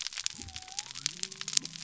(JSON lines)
{"label": "biophony", "recorder": "SoundTrap 300"}